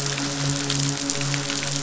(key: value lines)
label: biophony, midshipman
recorder: SoundTrap 500